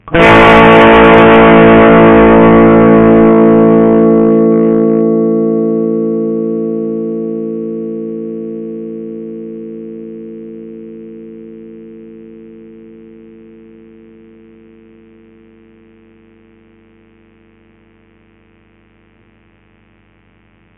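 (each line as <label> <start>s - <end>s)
An electric guitar is playing. 0.0s - 20.8s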